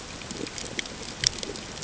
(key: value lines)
label: ambient
recorder: HydroMoth